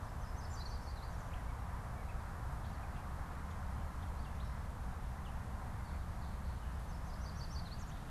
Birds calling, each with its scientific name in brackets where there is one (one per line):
Yellow Warbler (Setophaga petechia)